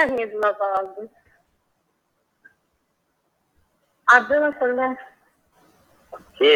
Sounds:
Sigh